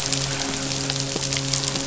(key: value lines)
label: biophony, midshipman
recorder: SoundTrap 500